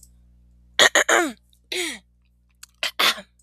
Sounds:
Throat clearing